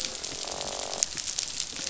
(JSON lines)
{"label": "biophony, croak", "recorder": "SoundTrap 500"}